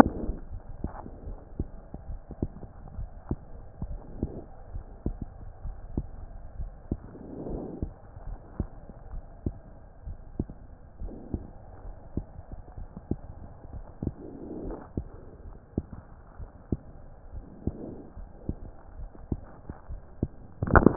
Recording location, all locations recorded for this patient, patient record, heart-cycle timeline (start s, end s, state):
aortic valve (AV)
aortic valve (AV)+pulmonary valve (PV)+tricuspid valve (TV)+mitral valve (MV)
#Age: Child
#Sex: Female
#Height: 123.0 cm
#Weight: 33.1 kg
#Pregnancy status: False
#Murmur: Absent
#Murmur locations: nan
#Most audible location: nan
#Systolic murmur timing: nan
#Systolic murmur shape: nan
#Systolic murmur grading: nan
#Systolic murmur pitch: nan
#Systolic murmur quality: nan
#Diastolic murmur timing: nan
#Diastolic murmur shape: nan
#Diastolic murmur grading: nan
#Diastolic murmur pitch: nan
#Diastolic murmur quality: nan
#Outcome: Normal
#Campaign: 2015 screening campaign
0.00	0.89	unannotated
0.89	1.24	diastole
1.24	1.38	S1
1.38	1.58	systole
1.58	1.68	S2
1.68	2.08	diastole
2.08	2.22	S1
2.22	2.40	systole
2.40	2.52	S2
2.52	2.96	diastole
2.96	3.10	S1
3.10	3.30	systole
3.30	3.40	S2
3.40	3.82	diastole
3.82	4.00	S1
4.00	4.18	systole
4.18	4.32	S2
4.32	4.72	diastole
4.72	4.84	S1
4.84	5.02	systole
5.02	5.18	S2
5.18	5.64	diastole
5.64	5.78	S1
5.78	5.96	systole
5.96	6.08	S2
6.08	6.58	diastole
6.58	6.72	S1
6.72	6.90	systole
6.90	7.00	S2
7.00	7.46	diastole
7.46	7.62	S1
7.62	7.80	systole
7.80	7.90	S2
7.90	8.30	diastole
8.30	8.40	S1
8.40	8.56	systole
8.56	8.68	S2
8.68	9.12	diastole
9.12	9.22	S1
9.22	9.42	systole
9.42	9.54	S2
9.54	10.06	diastole
10.06	10.18	S1
10.18	10.36	systole
10.36	10.48	S2
10.48	11.02	diastole
11.02	11.16	S1
11.16	11.32	systole
11.32	11.44	S2
11.44	11.86	diastole
11.86	11.96	S1
11.96	12.14	systole
12.14	12.24	S2
12.24	12.78	diastole
12.78	12.88	S1
12.88	13.08	systole
13.08	13.18	S2
13.18	13.72	diastole
13.72	13.84	S1
13.84	14.00	systole
14.00	14.14	S2
14.14	14.62	diastole
14.62	14.78	S1
14.78	14.94	systole
14.94	15.08	S2
15.08	15.48	diastole
15.48	15.58	S1
15.58	15.76	systole
15.76	15.88	S2
15.88	16.40	diastole
16.40	16.50	S1
16.50	16.68	systole
16.68	16.80	S2
16.80	17.34	diastole
17.34	17.44	S1
17.44	17.64	systole
17.64	17.74	S2
17.74	18.18	diastole
18.18	18.28	S1
18.28	18.46	systole
18.46	18.56	S2
18.56	18.96	diastole
18.96	19.08	S1
19.08	19.28	systole
19.28	19.40	S2
19.40	19.90	diastole
19.90	20.00	S1
20.00	20.20	systole
20.20	20.30	S2
20.30	20.47	diastole
20.47	20.96	unannotated